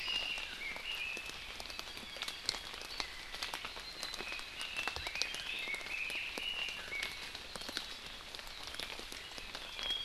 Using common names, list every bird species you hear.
Red-billed Leiothrix